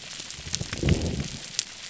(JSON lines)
{"label": "biophony", "recorder": "SoundTrap 300"}